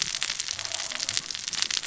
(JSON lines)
{"label": "biophony, cascading saw", "recorder": "SoundTrap 600 or HydroMoth"}